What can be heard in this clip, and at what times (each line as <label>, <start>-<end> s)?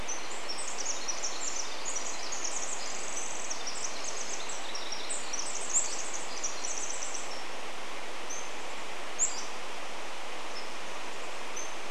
Pacific Wren song, 0-8 s
Pacific-slope Flycatcher song, 8-10 s
Chestnut-backed Chickadee call, 8-12 s
Pacific-slope Flycatcher call, 8-12 s